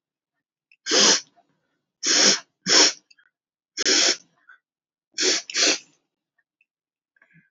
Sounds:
Sniff